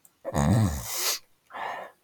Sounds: Sneeze